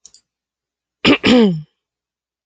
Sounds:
Throat clearing